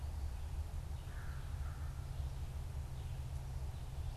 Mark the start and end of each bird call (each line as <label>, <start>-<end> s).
American Crow (Corvus brachyrhynchos), 0.9-2.3 s